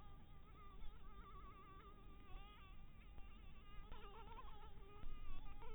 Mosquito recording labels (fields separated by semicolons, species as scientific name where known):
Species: Anopheles dirus; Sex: female; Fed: blood-fed; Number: one; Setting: cup